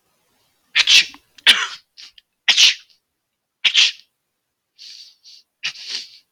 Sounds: Sneeze